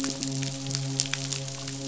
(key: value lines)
label: biophony, midshipman
recorder: SoundTrap 500